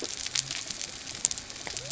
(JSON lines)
{"label": "biophony", "recorder": "SoundTrap 300"}